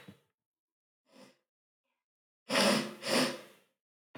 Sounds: Sniff